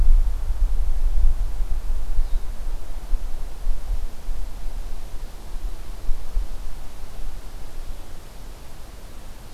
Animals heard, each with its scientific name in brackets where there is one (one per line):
Blue-headed Vireo (Vireo solitarius)